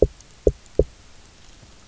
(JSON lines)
{"label": "biophony, knock", "recorder": "SoundTrap 300"}